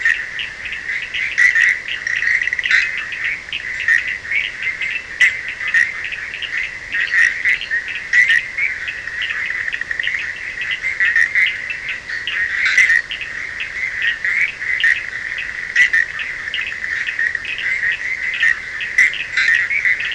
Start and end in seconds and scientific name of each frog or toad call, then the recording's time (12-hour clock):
0.0	20.1	Boana bischoffi
0.0	20.1	Sphaenorhynchus surdus
2.0	2.8	Boana leptolineata
12.6	12.9	Boana leptolineata
3:15am